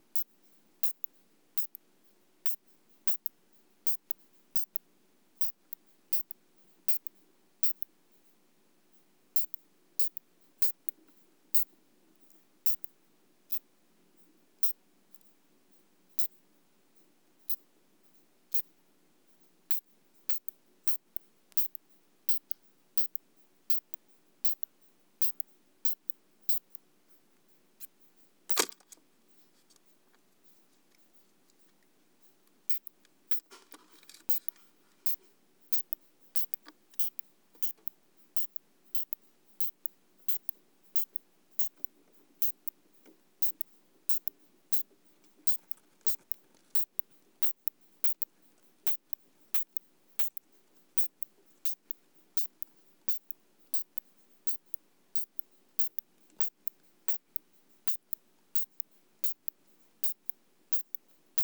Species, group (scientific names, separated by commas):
Isophya pyrenaea, Orthoptera